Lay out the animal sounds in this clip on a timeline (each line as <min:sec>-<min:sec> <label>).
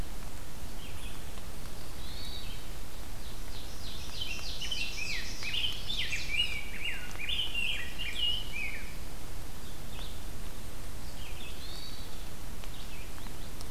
0:00.0-0:02.7 Red-eyed Vireo (Vireo olivaceus)
0:01.9-0:02.6 Hermit Thrush (Catharus guttatus)
0:03.0-0:05.8 Ovenbird (Seiurus aurocapilla)
0:04.1-0:09.2 Rose-breasted Grosbeak (Pheucticus ludovicianus)
0:05.3-0:06.3 Chestnut-sided Warbler (Setophaga pensylvanica)
0:07.5-0:08.7 Chestnut-sided Warbler (Setophaga pensylvanica)
0:09.8-0:13.7 Red-eyed Vireo (Vireo olivaceus)
0:11.4-0:12.2 Hermit Thrush (Catharus guttatus)